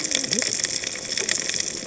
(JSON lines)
{"label": "biophony, cascading saw", "recorder": "HydroMoth"}